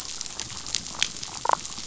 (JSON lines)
{"label": "biophony, damselfish", "recorder": "SoundTrap 500"}